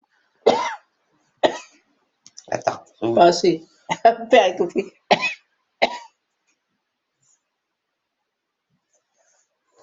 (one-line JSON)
{"expert_labels": [{"quality": "good", "cough_type": "unknown", "dyspnea": false, "wheezing": false, "stridor": false, "choking": false, "congestion": false, "nothing": true, "diagnosis": "upper respiratory tract infection", "severity": "mild"}], "age": 72, "gender": "female", "respiratory_condition": false, "fever_muscle_pain": true, "status": "healthy"}